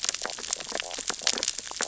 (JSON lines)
{"label": "biophony, stridulation", "recorder": "SoundTrap 600 or HydroMoth"}
{"label": "biophony, sea urchins (Echinidae)", "recorder": "SoundTrap 600 or HydroMoth"}